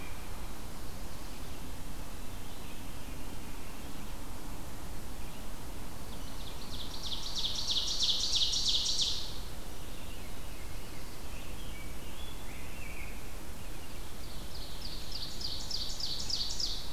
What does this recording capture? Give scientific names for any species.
Catharus fuscescens, Seiurus aurocapilla, Hylocichla mustelina, Pheucticus ludovicianus